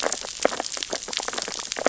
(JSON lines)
{"label": "biophony, sea urchins (Echinidae)", "recorder": "SoundTrap 600 or HydroMoth"}